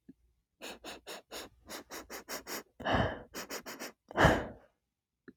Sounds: Sniff